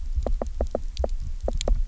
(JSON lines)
{"label": "biophony, knock", "recorder": "SoundTrap 300"}